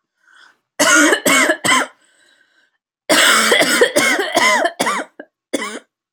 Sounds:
Cough